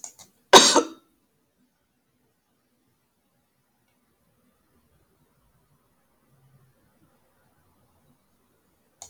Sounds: Cough